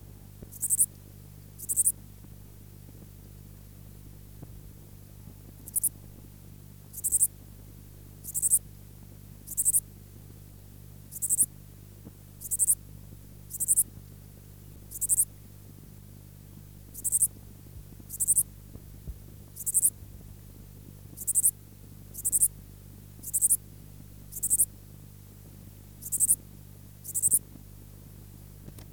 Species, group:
Pholidoptera macedonica
Orthoptera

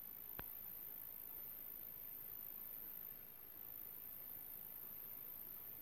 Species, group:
Cyphoderris monstrosa
Orthoptera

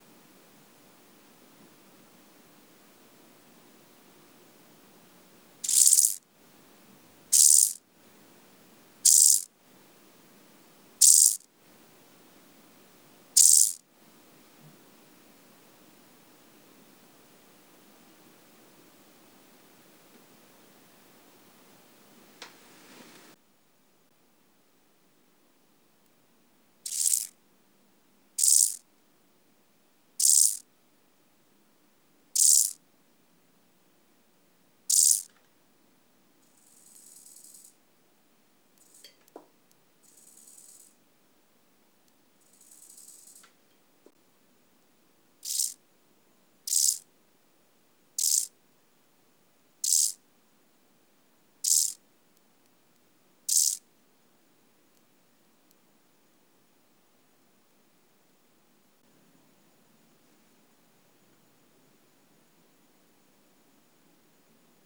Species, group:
Chorthippus brunneus
Orthoptera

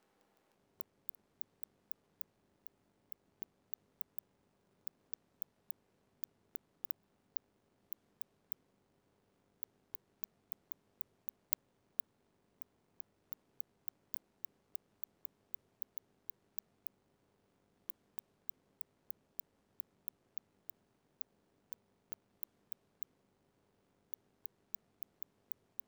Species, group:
Cyrtaspis scutata
Orthoptera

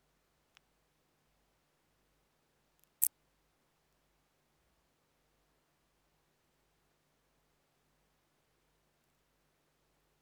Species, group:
Decticus verrucivorus
Orthoptera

